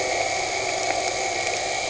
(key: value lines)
label: anthrophony, boat engine
recorder: HydroMoth